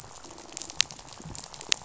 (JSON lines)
{"label": "biophony, rattle", "recorder": "SoundTrap 500"}